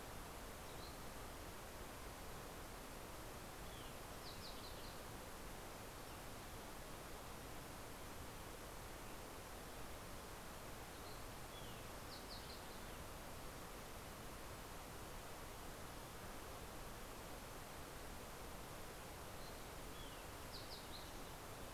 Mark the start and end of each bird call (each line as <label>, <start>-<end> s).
Fox Sparrow (Passerella iliaca), 3.3-5.4 s
Fox Sparrow (Passerella iliaca), 10.5-13.2 s
Fox Sparrow (Passerella iliaca), 18.7-21.7 s